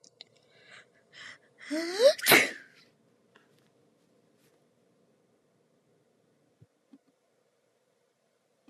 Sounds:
Sneeze